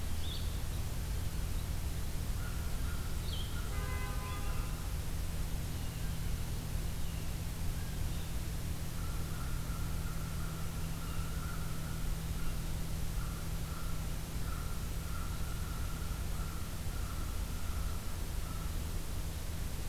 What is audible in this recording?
Blue-headed Vireo, American Crow